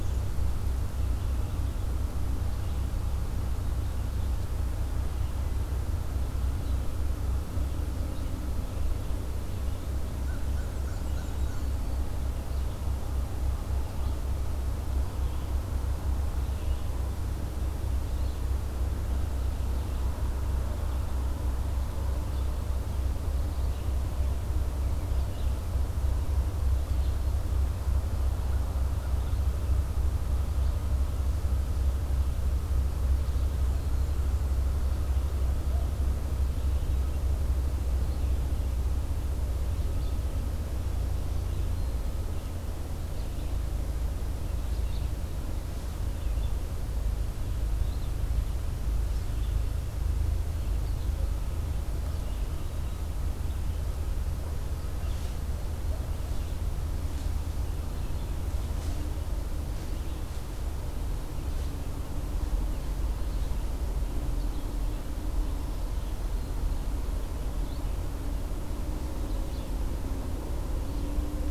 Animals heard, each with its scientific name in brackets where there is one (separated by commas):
Black-throated Green Warbler (Setophaga virens), Red-eyed Vireo (Vireo olivaceus), Black-and-white Warbler (Mniotilta varia), American Crow (Corvus brachyrhynchos)